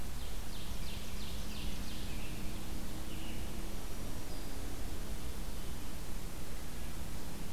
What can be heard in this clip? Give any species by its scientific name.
Seiurus aurocapilla, Turdus migratorius, Setophaga virens